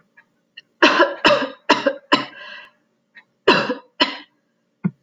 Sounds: Cough